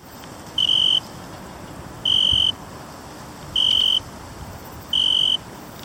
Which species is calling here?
Oecanthus pellucens